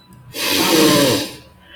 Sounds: Sigh